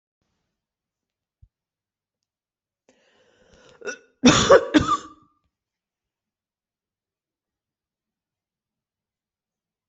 {"expert_labels": [{"quality": "good", "cough_type": "dry", "dyspnea": false, "wheezing": false, "stridor": false, "choking": false, "congestion": false, "nothing": true, "diagnosis": "healthy cough", "severity": "pseudocough/healthy cough"}], "age": 56, "gender": "female", "respiratory_condition": false, "fever_muscle_pain": false, "status": "symptomatic"}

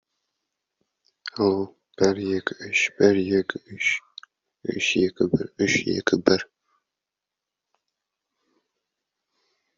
{"expert_labels": [{"quality": "no cough present", "dyspnea": false, "wheezing": false, "stridor": false, "choking": false, "congestion": false, "nothing": false}], "gender": "female", "respiratory_condition": true, "fever_muscle_pain": true, "status": "COVID-19"}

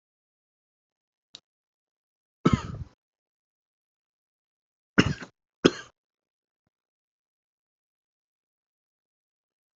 {"expert_labels": [{"quality": "ok", "cough_type": "dry", "dyspnea": false, "wheezing": false, "stridor": false, "choking": false, "congestion": false, "nothing": true, "diagnosis": "COVID-19", "severity": "mild"}], "age": 19, "gender": "male", "respiratory_condition": true, "fever_muscle_pain": false, "status": "COVID-19"}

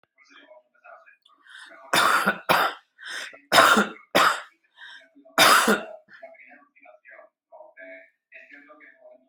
{"expert_labels": [{"quality": "good", "cough_type": "dry", "dyspnea": false, "wheezing": false, "stridor": false, "choking": false, "congestion": false, "nothing": true, "diagnosis": "upper respiratory tract infection", "severity": "mild"}], "age": 44, "gender": "male", "respiratory_condition": false, "fever_muscle_pain": false, "status": "symptomatic"}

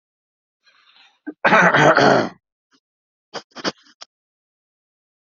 {"expert_labels": [{"quality": "good", "cough_type": "wet", "dyspnea": false, "wheezing": false, "stridor": false, "choking": false, "congestion": false, "nothing": true, "diagnosis": "lower respiratory tract infection", "severity": "unknown"}], "age": 40, "gender": "male", "respiratory_condition": false, "fever_muscle_pain": false, "status": "symptomatic"}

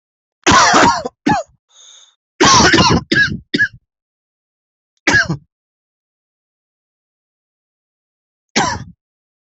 {"expert_labels": [{"quality": "good", "cough_type": "wet", "dyspnea": false, "wheezing": false, "stridor": false, "choking": false, "congestion": false, "nothing": true, "diagnosis": "lower respiratory tract infection", "severity": "mild"}], "age": 24, "gender": "female", "respiratory_condition": false, "fever_muscle_pain": true, "status": "COVID-19"}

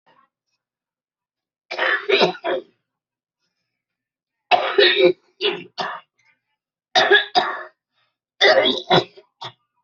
{"expert_labels": [{"quality": "good", "cough_type": "wet", "dyspnea": false, "wheezing": false, "stridor": false, "choking": false, "congestion": false, "nothing": true, "diagnosis": "lower respiratory tract infection", "severity": "severe"}], "age": 43, "gender": "female", "respiratory_condition": true, "fever_muscle_pain": false, "status": "symptomatic"}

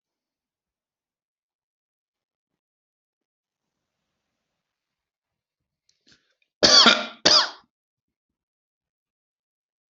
{"expert_labels": [{"quality": "good", "cough_type": "dry", "dyspnea": false, "wheezing": false, "stridor": false, "choking": false, "congestion": false, "nothing": true, "diagnosis": "healthy cough", "severity": "pseudocough/healthy cough"}], "age": 57, "gender": "male", "respiratory_condition": true, "fever_muscle_pain": false, "status": "COVID-19"}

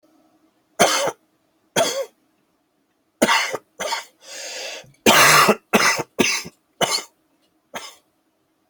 {"expert_labels": [{"quality": "ok", "cough_type": "dry", "dyspnea": false, "wheezing": false, "stridor": false, "choking": false, "congestion": false, "nothing": true, "diagnosis": "COVID-19", "severity": "severe"}], "age": 27, "gender": "male", "respiratory_condition": false, "fever_muscle_pain": false, "status": "symptomatic"}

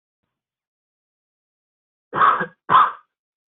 {"expert_labels": [{"quality": "ok", "cough_type": "unknown", "dyspnea": false, "wheezing": false, "stridor": false, "choking": false, "congestion": false, "nothing": true, "diagnosis": "healthy cough", "severity": "pseudocough/healthy cough"}], "age": 18, "gender": "female", "respiratory_condition": true, "fever_muscle_pain": true, "status": "COVID-19"}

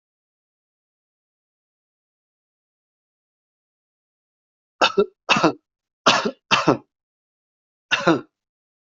{"expert_labels": [{"quality": "good", "cough_type": "dry", "dyspnea": false, "wheezing": false, "stridor": false, "choking": false, "congestion": false, "nothing": true, "diagnosis": "upper respiratory tract infection", "severity": "mild"}], "age": 45, "gender": "male", "respiratory_condition": false, "fever_muscle_pain": false, "status": "healthy"}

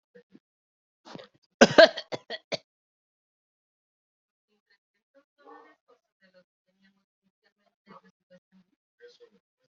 {"expert_labels": [{"quality": "ok", "cough_type": "unknown", "dyspnea": false, "wheezing": false, "stridor": false, "choking": false, "congestion": false, "nothing": true, "diagnosis": "healthy cough", "severity": "pseudocough/healthy cough"}, {"quality": "ok", "cough_type": "dry", "dyspnea": false, "wheezing": false, "stridor": false, "choking": false, "congestion": false, "nothing": true, "diagnosis": "upper respiratory tract infection", "severity": "unknown"}, {"quality": "good", "cough_type": "dry", "dyspnea": false, "wheezing": false, "stridor": false, "choking": false, "congestion": false, "nothing": true, "diagnosis": "upper respiratory tract infection", "severity": "unknown"}, {"quality": "good", "cough_type": "dry", "dyspnea": false, "wheezing": false, "stridor": false, "choking": false, "congestion": false, "nothing": true, "diagnosis": "healthy cough", "severity": "pseudocough/healthy cough"}], "age": 37, "gender": "male", "respiratory_condition": false, "fever_muscle_pain": false, "status": "COVID-19"}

